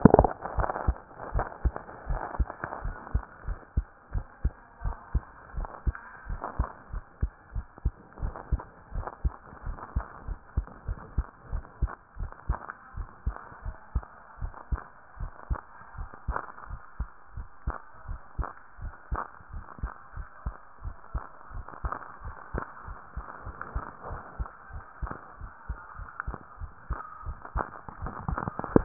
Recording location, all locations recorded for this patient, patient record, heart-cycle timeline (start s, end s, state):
pulmonary valve (PV)
pulmonary valve (PV)+tricuspid valve (TV)+mitral valve (MV)
#Age: Child
#Sex: Female
#Height: 123.0 cm
#Weight: 25.8 kg
#Pregnancy status: False
#Murmur: Absent
#Murmur locations: nan
#Most audible location: nan
#Systolic murmur timing: nan
#Systolic murmur shape: nan
#Systolic murmur grading: nan
#Systolic murmur pitch: nan
#Systolic murmur quality: nan
#Diastolic murmur timing: nan
#Diastolic murmur shape: nan
#Diastolic murmur grading: nan
#Diastolic murmur pitch: nan
#Diastolic murmur quality: nan
#Outcome: Normal
#Campaign: 2014 screening campaign
0.00	0.14	systole
0.14	0.30	S2
0.30	0.56	diastole
0.56	0.70	S1
0.70	0.84	systole
0.84	0.96	S2
0.96	1.32	diastole
1.32	1.46	S1
1.46	1.64	systole
1.64	1.76	S2
1.76	2.08	diastole
2.08	2.22	S1
2.22	2.38	systole
2.38	2.50	S2
2.50	2.82	diastole
2.82	2.96	S1
2.96	3.10	systole
3.10	3.22	S2
3.22	3.48	diastole
3.48	3.60	S1
3.60	3.72	systole
3.72	3.86	S2
3.86	4.14	diastole
4.14	4.26	S1
4.26	4.40	systole
4.40	4.54	S2
4.54	4.82	diastole
4.82	4.96	S1
4.96	5.10	systole
5.10	5.24	S2
5.24	5.56	diastole
5.56	5.70	S1
5.70	5.82	systole
5.82	5.96	S2
5.96	6.28	diastole
6.28	6.42	S1
6.42	6.58	systole
6.58	6.68	S2
6.68	6.94	diastole
6.94	7.04	S1
7.04	7.18	systole
7.18	7.30	S2
7.30	7.56	diastole
7.56	7.66	S1
7.66	7.82	systole
7.82	7.96	S2
7.96	8.22	diastole
8.22	8.36	S1
8.36	8.48	systole
8.48	8.62	S2
8.62	8.92	diastole
8.92	9.06	S1
9.06	9.24	systole
9.24	9.34	S2
9.34	9.64	diastole
9.64	9.78	S1
9.78	9.92	systole
9.92	10.04	S2
10.04	10.30	diastole
10.30	10.40	S1
10.40	10.54	systole
10.54	10.62	S2
10.62	10.88	diastole
10.88	10.98	S1
10.98	11.14	systole
11.14	11.26	S2
11.26	11.52	diastole
11.52	11.64	S1
11.64	11.78	systole
11.78	11.92	S2
11.92	12.18	diastole
12.18	12.32	S1
12.32	12.46	systole
12.46	12.60	S2
12.60	12.96	diastole
12.96	13.08	S1
13.08	13.24	systole
13.24	13.36	S2
13.36	13.64	diastole
13.64	13.76	S1
13.76	13.92	systole
13.92	14.06	S2
14.06	14.40	diastole
14.40	14.54	S1
14.54	14.72	systole
14.72	14.84	S2
14.84	15.18	diastole
15.18	15.32	S1
15.32	15.48	systole
15.48	15.62	S2
15.62	15.96	diastole
15.96	16.08	S1
16.08	16.26	systole
16.26	16.38	S2
16.38	16.70	diastole
16.70	16.80	S1
16.80	16.96	systole
16.96	17.08	S2
17.08	17.36	diastole
17.36	17.48	S1
17.48	17.64	systole
17.64	17.76	S2
17.76	18.08	diastole
18.08	18.20	S1
18.20	18.36	systole
18.36	18.48	S2
18.48	18.80	diastole
18.80	18.94	S1
18.94	19.10	systole
19.10	19.20	S2
19.20	19.52	diastole
19.52	19.64	S1
19.64	19.82	systole
19.82	19.92	S2
19.92	20.18	diastole
20.18	20.26	S1
20.26	20.42	systole
20.42	20.54	S2
20.54	20.84	diastole
20.84	20.94	S1
20.94	21.12	systole
21.12	21.22	S2
21.22	21.54	diastole
21.54	21.66	S1
21.66	21.83	systole
21.83	21.99	S2
21.99	22.24	diastole
22.24	22.34	S1
22.34	22.52	systole
22.52	22.62	S2
22.62	22.88	diastole
22.88	22.98	S1
22.98	23.17	systole
23.17	23.25	S2
23.25	23.44	diastole
23.44	23.56	S1
23.56	23.74	systole
23.74	23.84	S2
23.84	24.10	diastole
24.10	24.22	S1
24.22	24.38	systole
24.38	24.48	S2
24.48	24.74	diastole
24.74	24.84	S1
24.84	25.02	systole
25.02	25.10	S2
25.10	25.40	diastole
25.40	25.50	S1
25.50	25.64	systole
25.64	25.68	S2
25.68	25.98	diastole
25.98	26.08	S1
26.08	26.26	systole
26.26	26.36	S2
26.36	26.62	diastole
26.62	26.72	S1
26.72	26.88	systole
26.88	27.00	S2
27.00	27.26	diastole
27.26	27.38	S1
27.38	27.54	systole
27.54	27.68	S2
27.68	28.00	diastole
28.00	28.14	S1
28.14	28.26	systole
28.26	28.40	S2
28.40	28.72	diastole
28.72	28.85	S1